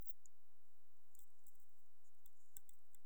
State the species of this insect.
Tessellana lagrecai